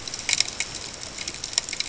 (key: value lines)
label: ambient
recorder: HydroMoth